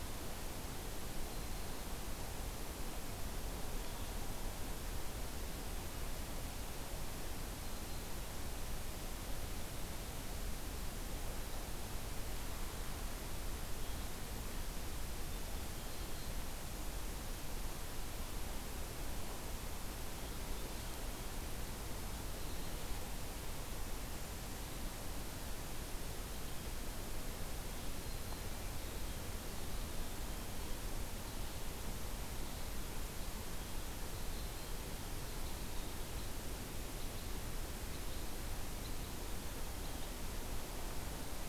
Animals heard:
forest ambience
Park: Acadia National Park